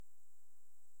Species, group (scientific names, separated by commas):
Pholidoptera griseoaptera, Orthoptera